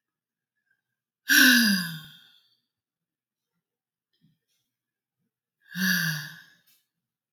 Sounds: Sigh